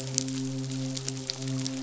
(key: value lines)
label: biophony, midshipman
recorder: SoundTrap 500